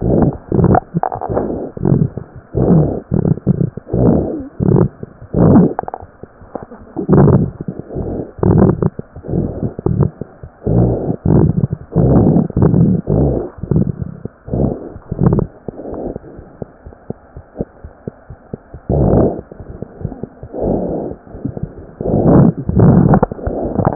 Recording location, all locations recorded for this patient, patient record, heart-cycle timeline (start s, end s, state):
mitral valve (MV)
mitral valve (MV)
#Age: Infant
#Sex: Male
#Height: 64.0 cm
#Weight: 6.6 kg
#Pregnancy status: False
#Murmur: Absent
#Murmur locations: nan
#Most audible location: nan
#Systolic murmur timing: nan
#Systolic murmur shape: nan
#Systolic murmur grading: nan
#Systolic murmur pitch: nan
#Systolic murmur quality: nan
#Diastolic murmur timing: nan
#Diastolic murmur shape: nan
#Diastolic murmur grading: nan
#Diastolic murmur pitch: nan
#Diastolic murmur quality: nan
#Outcome: Abnormal
#Campaign: 2015 screening campaign
0.00	16.33	unannotated
16.33	16.48	S1
16.48	16.57	systole
16.57	16.67	S2
16.67	16.83	diastole
16.83	16.94	S1
16.94	17.07	systole
17.07	17.15	S2
17.15	17.33	diastole
17.33	17.44	S1
17.44	17.58	systole
17.58	17.67	S2
17.67	17.82	diastole
17.82	17.92	S1
17.92	18.04	systole
18.04	18.13	S2
18.13	18.28	diastole
18.28	18.39	S1
18.39	18.50	systole
18.50	18.60	S2
18.60	18.72	diastole
18.72	18.80	S1
18.80	23.95	unannotated